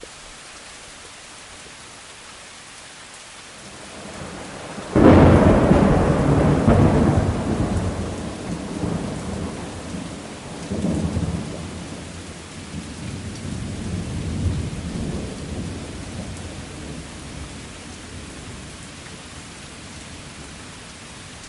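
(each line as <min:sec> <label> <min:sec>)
0:00.0 Heavy rain falls. 0:21.5
0:03.7 Thunder is heard. 0:07.9
0:04.9 Thunder follows a lightning strike. 0:07.9
0:07.9 A small thunder rumbles repeatedly. 0:18.5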